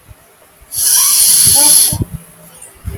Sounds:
Sniff